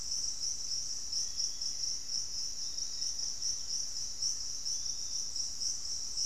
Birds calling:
unidentified bird, Piratic Flycatcher (Legatus leucophaius), Black-faced Antthrush (Formicarius analis)

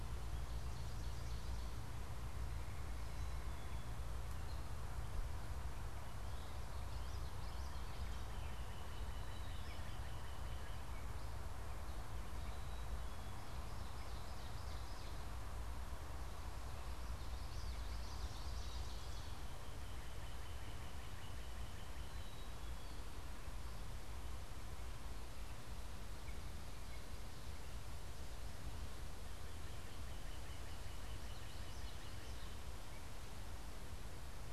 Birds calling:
Common Yellowthroat (Geothlypis trichas), Black-capped Chickadee (Poecile atricapillus), Ovenbird (Seiurus aurocapilla), Northern Cardinal (Cardinalis cardinalis)

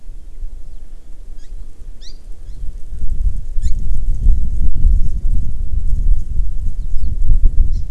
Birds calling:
Hawaii Amakihi (Chlorodrepanis virens)

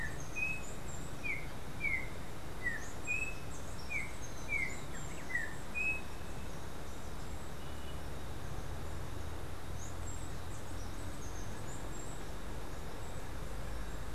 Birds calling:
Yellow-backed Oriole (Icterus chrysater), Steely-vented Hummingbird (Saucerottia saucerottei)

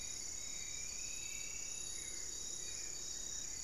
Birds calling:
Striped Woodcreeper (Xiphorhynchus obsoletus), Buff-throated Woodcreeper (Xiphorhynchus guttatus), Hauxwell's Thrush (Turdus hauxwelli), Spot-winged Antshrike (Pygiptila stellaris)

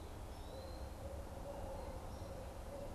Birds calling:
Red-eyed Vireo (Vireo olivaceus), Barred Owl (Strix varia)

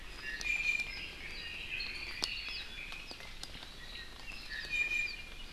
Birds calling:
Iiwi (Drepanis coccinea), Apapane (Himatione sanguinea), Red-billed Leiothrix (Leiothrix lutea)

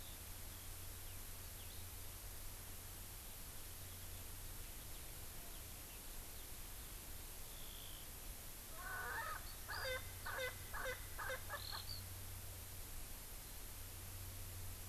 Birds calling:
Erckel's Francolin (Pternistis erckelii)

